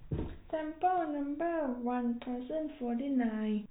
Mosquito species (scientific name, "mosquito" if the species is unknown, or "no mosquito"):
no mosquito